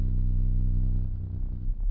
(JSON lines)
{"label": "anthrophony, boat engine", "recorder": "SoundTrap 300"}